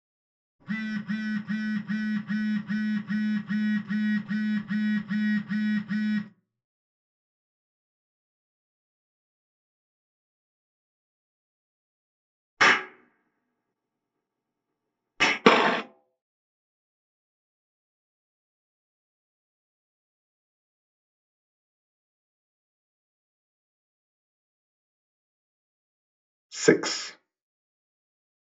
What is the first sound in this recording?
telephone